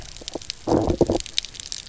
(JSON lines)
{"label": "biophony, low growl", "recorder": "SoundTrap 300"}